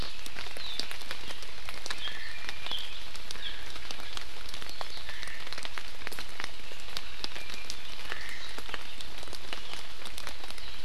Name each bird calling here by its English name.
Iiwi, Omao